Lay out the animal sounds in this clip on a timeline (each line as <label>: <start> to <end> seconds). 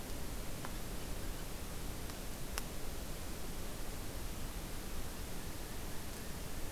American Crow (Corvus brachyrhynchos): 4.9 to 6.7 seconds